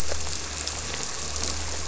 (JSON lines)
{"label": "anthrophony, boat engine", "recorder": "SoundTrap 300"}